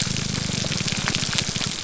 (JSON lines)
{"label": "biophony, grouper groan", "recorder": "SoundTrap 300"}